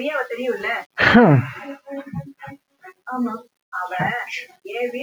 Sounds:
Sneeze